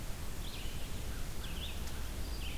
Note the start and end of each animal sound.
0.0s-2.6s: Red-eyed Vireo (Vireo olivaceus)
1.0s-2.2s: American Crow (Corvus brachyrhynchos)

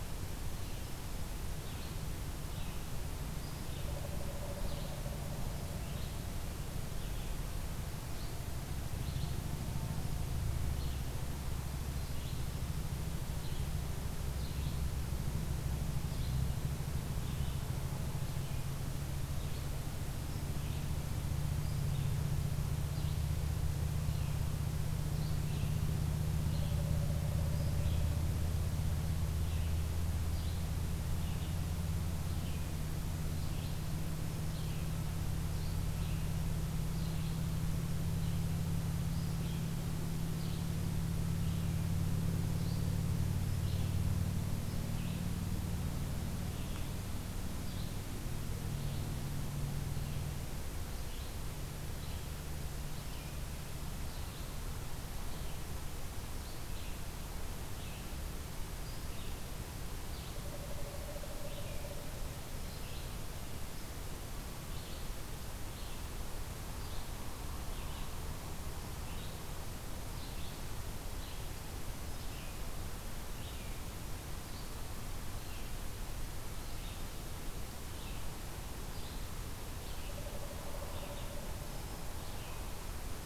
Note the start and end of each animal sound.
0.0s-4.0s: Red-eyed Vireo (Vireo olivaceus)
3.8s-5.8s: Pileated Woodpecker (Dryocopus pileatus)
4.5s-61.9s: Red-eyed Vireo (Vireo olivaceus)
26.7s-28.2s: Pileated Woodpecker (Dryocopus pileatus)
34.1s-35.0s: Black-throated Green Warbler (Setophaga virens)
60.2s-62.2s: Pileated Woodpecker (Dryocopus pileatus)
62.4s-63.2s: Black-throated Green Warbler (Setophaga virens)
62.6s-83.3s: Red-eyed Vireo (Vireo olivaceus)
67.0s-68.6s: American Crow (Corvus brachyrhynchos)
71.9s-72.7s: Black-throated Green Warbler (Setophaga virens)
80.0s-81.8s: Pileated Woodpecker (Dryocopus pileatus)

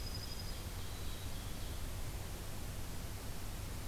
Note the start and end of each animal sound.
0.0s-0.6s: Dark-eyed Junco (Junco hyemalis)
0.0s-1.9s: Ovenbird (Seiurus aurocapilla)
0.8s-1.9s: Black-capped Chickadee (Poecile atricapillus)

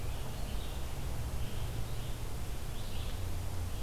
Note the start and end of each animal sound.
0.0s-3.8s: Red-eyed Vireo (Vireo olivaceus)

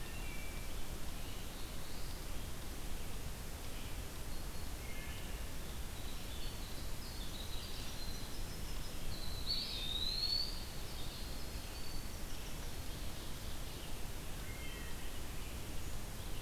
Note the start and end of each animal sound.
0.0s-0.7s: Wood Thrush (Hylocichla mustelina)
0.0s-16.4s: Red-eyed Vireo (Vireo olivaceus)
0.8s-2.4s: Black-throated Blue Warbler (Setophaga caerulescens)
4.7s-5.5s: Wood Thrush (Hylocichla mustelina)
5.7s-12.8s: Winter Wren (Troglodytes hiemalis)
9.2s-10.7s: Eastern Wood-Pewee (Contopus virens)
12.5s-14.1s: Ovenbird (Seiurus aurocapilla)
14.4s-15.1s: Wood Thrush (Hylocichla mustelina)

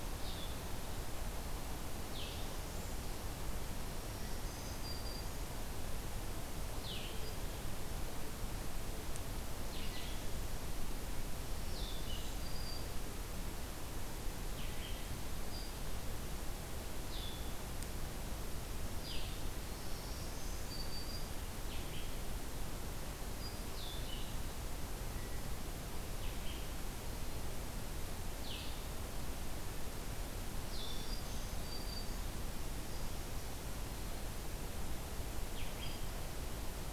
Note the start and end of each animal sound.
0.0s-36.9s: Blue-headed Vireo (Vireo solitarius)
3.9s-5.5s: Black-throated Green Warbler (Setophaga virens)
12.1s-13.2s: Black-throated Green Warbler (Setophaga virens)
19.6s-21.4s: Black-throated Green Warbler (Setophaga virens)
30.6s-32.6s: Black-throated Green Warbler (Setophaga virens)

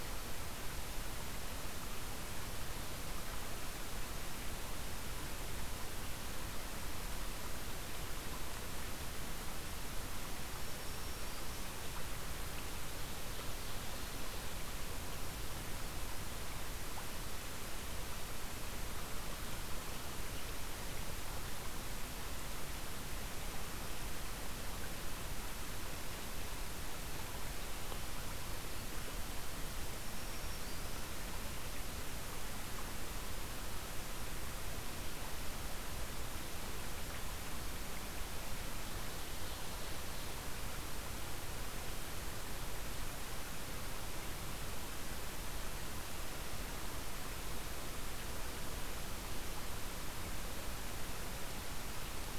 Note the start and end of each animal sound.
10.6s-11.7s: Black-throated Green Warbler (Setophaga virens)
30.1s-31.1s: Black-throated Green Warbler (Setophaga virens)
38.7s-40.4s: Ovenbird (Seiurus aurocapilla)

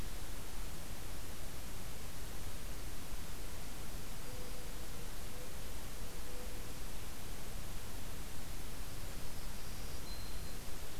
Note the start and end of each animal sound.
3.7s-4.8s: Black-throated Green Warbler (Setophaga virens)
4.2s-6.8s: Mourning Dove (Zenaida macroura)
8.9s-10.6s: Black-throated Green Warbler (Setophaga virens)

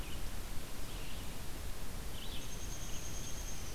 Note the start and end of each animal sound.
0.0s-3.7s: Red-eyed Vireo (Vireo olivaceus)
2.3s-3.7s: Downy Woodpecker (Dryobates pubescens)

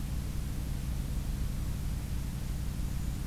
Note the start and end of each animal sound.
2.4s-3.3s: Golden-crowned Kinglet (Regulus satrapa)

